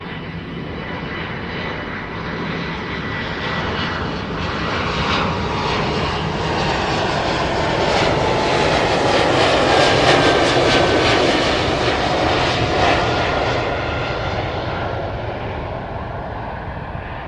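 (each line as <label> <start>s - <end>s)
An airplane engine sound that increases and then decreases as it flies overhead. 0.0s - 17.3s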